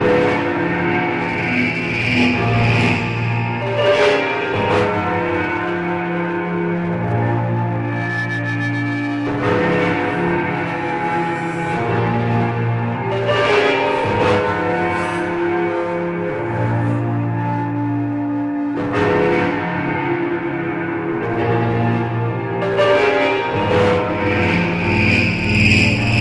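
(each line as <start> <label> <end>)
0.0 Melancholy piano chord progression with warped effects and ambient reverb. 26.2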